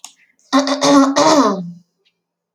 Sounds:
Throat clearing